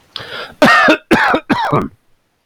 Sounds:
Cough